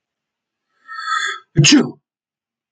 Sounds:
Sneeze